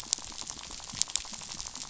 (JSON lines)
{"label": "biophony, rattle", "recorder": "SoundTrap 500"}